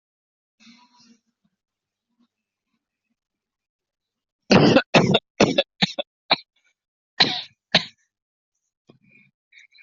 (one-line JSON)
{"expert_labels": [{"quality": "good", "cough_type": "wet", "dyspnea": false, "wheezing": false, "stridor": false, "choking": false, "congestion": false, "nothing": true, "diagnosis": "obstructive lung disease", "severity": "unknown"}], "age": 33, "gender": "male", "respiratory_condition": false, "fever_muscle_pain": false, "status": "symptomatic"}